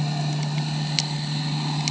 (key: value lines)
label: anthrophony, boat engine
recorder: HydroMoth